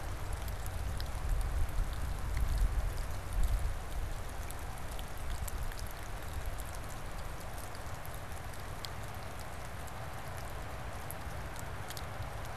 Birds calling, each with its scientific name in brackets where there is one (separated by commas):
Black-capped Chickadee (Poecile atricapillus)